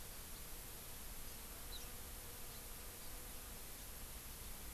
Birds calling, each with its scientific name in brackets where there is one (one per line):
House Finch (Haemorhous mexicanus)